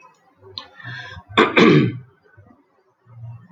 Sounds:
Throat clearing